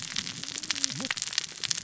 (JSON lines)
{"label": "biophony, cascading saw", "recorder": "SoundTrap 600 or HydroMoth"}